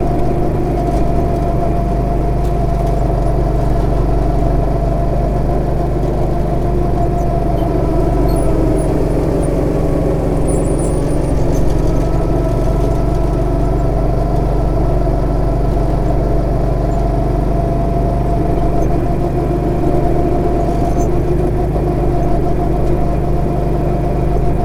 Is there a squeaking sound?
yes